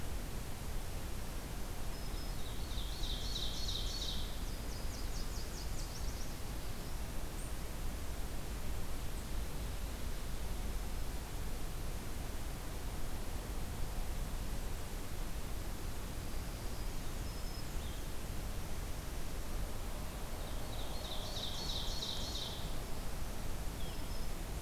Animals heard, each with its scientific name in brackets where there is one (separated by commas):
Black-throated Blue Warbler (Setophaga caerulescens), Blue-headed Vireo (Vireo solitarius), Ovenbird (Seiurus aurocapilla), Nashville Warbler (Leiothlypis ruficapilla), Black-throated Green Warbler (Setophaga virens)